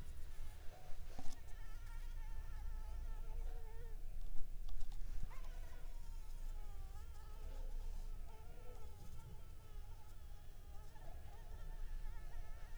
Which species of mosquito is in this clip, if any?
Anopheles arabiensis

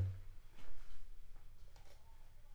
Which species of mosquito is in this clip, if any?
Anopheles funestus s.l.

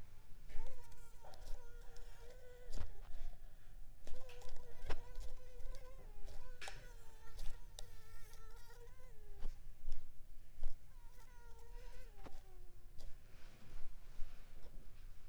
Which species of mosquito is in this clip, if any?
Culex pipiens complex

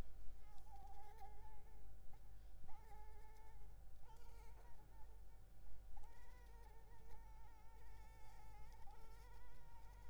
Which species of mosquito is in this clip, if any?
Anopheles arabiensis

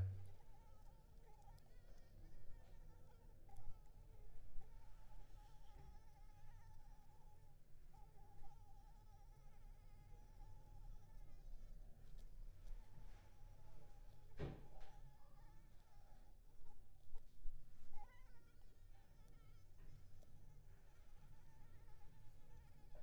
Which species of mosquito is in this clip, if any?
Anopheles arabiensis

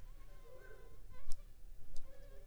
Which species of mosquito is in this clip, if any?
Anopheles funestus s.s.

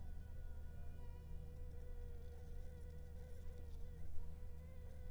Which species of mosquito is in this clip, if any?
Anopheles funestus s.s.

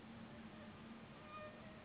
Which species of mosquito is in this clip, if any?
Anopheles gambiae s.s.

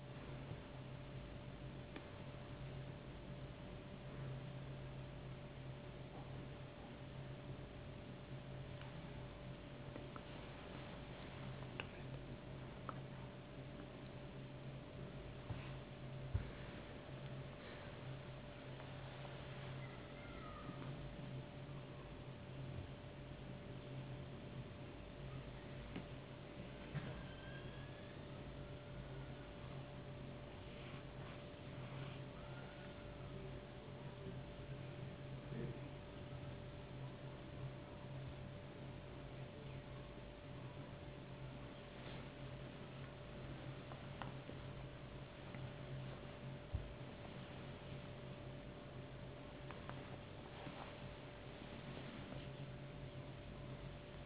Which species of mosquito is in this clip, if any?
no mosquito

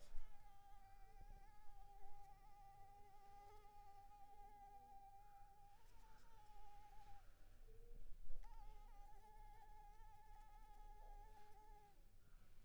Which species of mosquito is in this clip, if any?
Anopheles arabiensis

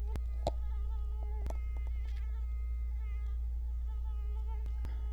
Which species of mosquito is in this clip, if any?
Culex quinquefasciatus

